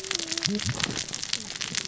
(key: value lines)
label: biophony, cascading saw
recorder: SoundTrap 600 or HydroMoth